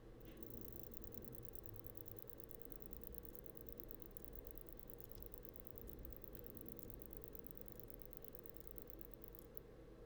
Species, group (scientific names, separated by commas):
Vichetia oblongicollis, Orthoptera